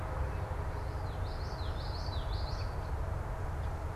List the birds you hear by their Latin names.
Turdus migratorius, Geothlypis trichas